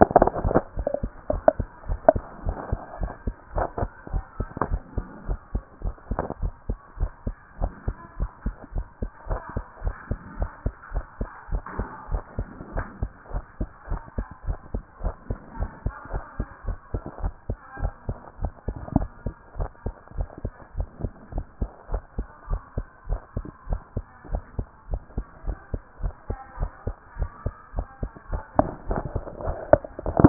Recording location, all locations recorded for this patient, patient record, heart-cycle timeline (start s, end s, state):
pulmonary valve (PV)
aortic valve (AV)+pulmonary valve (PV)+tricuspid valve (TV)+mitral valve (MV)
#Age: Child
#Sex: Male
#Height: 138.0 cm
#Weight: 33.0 kg
#Pregnancy status: False
#Murmur: Absent
#Murmur locations: nan
#Most audible location: nan
#Systolic murmur timing: nan
#Systolic murmur shape: nan
#Systolic murmur grading: nan
#Systolic murmur pitch: nan
#Systolic murmur quality: nan
#Diastolic murmur timing: nan
#Diastolic murmur shape: nan
#Diastolic murmur grading: nan
#Diastolic murmur pitch: nan
#Diastolic murmur quality: nan
#Outcome: Normal
#Campaign: 2014 screening campaign
0.00	2.44	unannotated
2.44	2.56	S1
2.56	2.70	systole
2.70	2.80	S2
2.80	3.00	diastole
3.00	3.12	S1
3.12	3.26	systole
3.26	3.34	S2
3.34	3.54	diastole
3.54	3.68	S1
3.68	3.80	systole
3.80	3.90	S2
3.90	4.12	diastole
4.12	4.24	S1
4.24	4.38	systole
4.38	4.48	S2
4.48	4.68	diastole
4.68	4.82	S1
4.82	4.96	systole
4.96	5.06	S2
5.06	5.28	diastole
5.28	5.38	S1
5.38	5.54	systole
5.54	5.62	S2
5.62	5.84	diastole
5.84	5.94	S1
5.94	6.10	systole
6.10	6.20	S2
6.20	6.42	diastole
6.42	6.52	S1
6.52	6.68	systole
6.68	6.78	S2
6.78	7.00	diastole
7.00	7.10	S1
7.10	7.26	systole
7.26	7.36	S2
7.36	7.60	diastole
7.60	7.72	S1
7.72	7.86	systole
7.86	7.96	S2
7.96	8.18	diastole
8.18	8.30	S1
8.30	8.44	systole
8.44	8.54	S2
8.54	8.74	diastole
8.74	8.86	S1
8.86	9.00	systole
9.00	9.10	S2
9.10	9.28	diastole
9.28	9.40	S1
9.40	9.54	systole
9.54	9.64	S2
9.64	9.84	diastole
9.84	9.94	S1
9.94	10.10	systole
10.10	10.18	S2
10.18	10.38	diastole
10.38	10.50	S1
10.50	10.64	systole
10.64	10.74	S2
10.74	10.92	diastole
10.92	11.04	S1
11.04	11.20	systole
11.20	11.28	S2
11.28	11.50	diastole
11.50	11.62	S1
11.62	11.78	systole
11.78	11.88	S2
11.88	12.10	diastole
12.10	12.22	S1
12.22	12.38	systole
12.38	12.48	S2
12.48	12.74	diastole
12.74	12.86	S1
12.86	13.00	systole
13.00	13.10	S2
13.10	13.32	diastole
13.32	13.44	S1
13.44	13.60	systole
13.60	13.68	S2
13.68	13.90	diastole
13.90	14.00	S1
14.00	14.16	systole
14.16	14.26	S2
14.26	14.46	diastole
14.46	14.58	S1
14.58	14.74	systole
14.74	14.82	S2
14.82	15.02	diastole
15.02	15.14	S1
15.14	15.28	systole
15.28	15.38	S2
15.38	15.58	diastole
15.58	15.70	S1
15.70	15.84	systole
15.84	15.94	S2
15.94	16.12	diastole
16.12	16.24	S1
16.24	16.38	systole
16.38	16.48	S2
16.48	16.66	diastole
16.66	16.78	S1
16.78	16.92	systole
16.92	17.02	S2
17.02	17.22	diastole
17.22	17.34	S1
17.34	17.48	systole
17.48	17.58	S2
17.58	17.80	diastole
17.80	17.92	S1
17.92	18.08	systole
18.08	18.18	S2
18.18	18.42	diastole
18.42	18.52	S1
18.52	18.66	systole
18.66	18.76	S2
18.76	18.94	diastole
18.94	19.08	S1
19.08	19.24	systole
19.24	19.34	S2
19.34	19.58	diastole
19.58	19.70	S1
19.70	19.84	systole
19.84	19.94	S2
19.94	20.16	diastole
20.16	20.28	S1
20.28	20.44	systole
20.44	20.52	S2
20.52	20.76	diastole
20.76	20.88	S1
20.88	21.02	systole
21.02	21.12	S2
21.12	21.34	diastole
21.34	21.46	S1
21.46	21.60	systole
21.60	21.70	S2
21.70	21.90	diastole
21.90	22.02	S1
22.02	22.18	systole
22.18	22.26	S2
22.26	22.50	diastole
22.50	22.62	S1
22.62	22.76	systole
22.76	22.86	S2
22.86	23.08	diastole
23.08	23.20	S1
23.20	23.36	systole
23.36	23.46	S2
23.46	23.68	diastole
23.68	23.80	S1
23.80	23.96	systole
23.96	24.04	S2
24.04	24.30	diastole
24.30	24.42	S1
24.42	24.58	systole
24.58	24.66	S2
24.66	24.90	diastole
24.90	25.02	S1
25.02	25.16	systole
25.16	25.26	S2
25.26	25.46	diastole
25.46	25.58	S1
25.58	25.72	systole
25.72	25.82	S2
25.82	26.02	diastole
26.02	26.14	S1
26.14	26.28	systole
26.28	26.38	S2
26.38	26.60	diastole
26.60	26.70	S1
26.70	26.86	systole
26.86	26.96	S2
26.96	27.18	diastole
27.18	27.30	S1
27.30	27.44	systole
27.44	27.54	S2
27.54	27.76	diastole
27.76	27.86	S1
27.86	28.02	systole
28.02	28.10	S2
28.10	28.30	diastole
28.30	30.29	unannotated